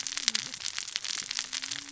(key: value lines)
label: biophony, cascading saw
recorder: SoundTrap 600 or HydroMoth